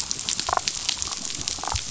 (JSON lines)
{"label": "biophony, damselfish", "recorder": "SoundTrap 500"}